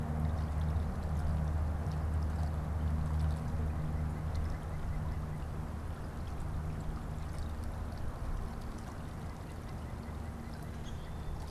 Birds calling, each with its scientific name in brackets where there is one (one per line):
White-breasted Nuthatch (Sitta carolinensis)